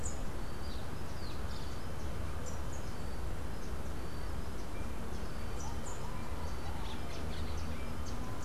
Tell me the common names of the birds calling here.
Orange-fronted Parakeet, Rufous-capped Warbler